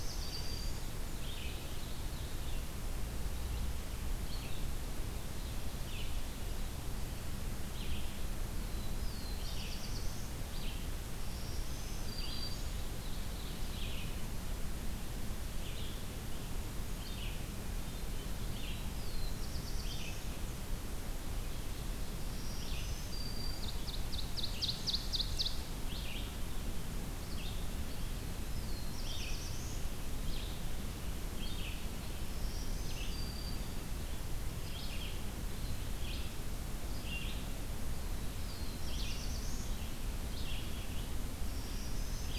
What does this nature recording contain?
Black-throated Blue Warbler, Black-throated Green Warbler, Red-eyed Vireo, Ovenbird